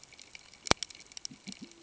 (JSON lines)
{"label": "ambient", "recorder": "HydroMoth"}